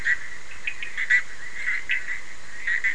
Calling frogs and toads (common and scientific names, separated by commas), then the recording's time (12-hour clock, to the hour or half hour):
Bischoff's tree frog (Boana bischoffi), Cochran's lime tree frog (Sphaenorhynchus surdus)
~2am